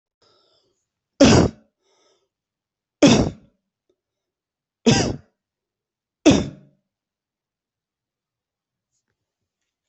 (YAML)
expert_labels:
- quality: ok
  cough_type: dry
  dyspnea: false
  wheezing: false
  stridor: false
  choking: false
  congestion: false
  nothing: true
  diagnosis: upper respiratory tract infection
  severity: mild
age: 26
gender: male
respiratory_condition: false
fever_muscle_pain: false
status: healthy